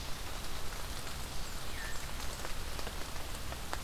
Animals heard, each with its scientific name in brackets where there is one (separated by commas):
Veery (Catharus fuscescens)